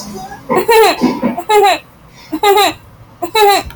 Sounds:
Laughter